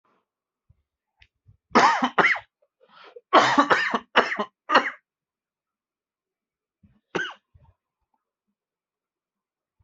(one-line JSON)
{"expert_labels": [{"quality": "good", "cough_type": "unknown", "dyspnea": false, "wheezing": false, "stridor": false, "choking": false, "congestion": false, "nothing": true, "diagnosis": "upper respiratory tract infection", "severity": "mild"}], "age": 45, "gender": "male", "respiratory_condition": true, "fever_muscle_pain": false, "status": "symptomatic"}